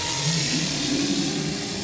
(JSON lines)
{"label": "anthrophony, boat engine", "recorder": "SoundTrap 500"}